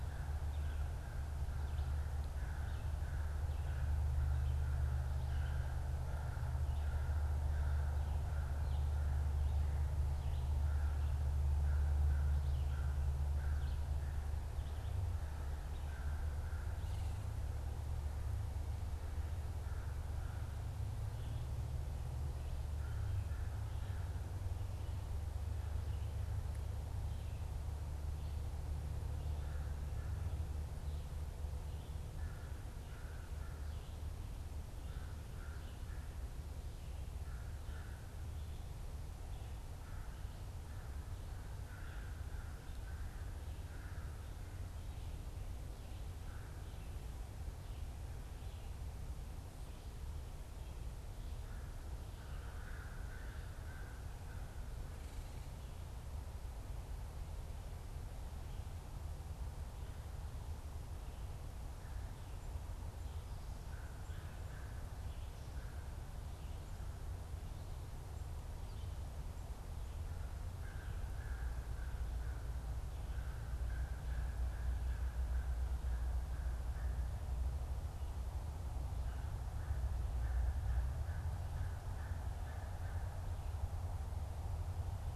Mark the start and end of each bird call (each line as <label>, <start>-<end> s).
American Crow (Corvus brachyrhynchos), 0.0-17.2 s
American Crow (Corvus brachyrhynchos), 19.1-46.8 s
American Crow (Corvus brachyrhynchos), 51.3-54.9 s
American Crow (Corvus brachyrhynchos), 63.5-83.3 s